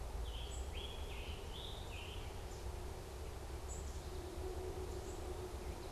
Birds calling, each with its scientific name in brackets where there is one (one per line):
unidentified bird
Scarlet Tanager (Piranga olivacea)